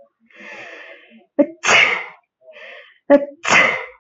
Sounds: Sneeze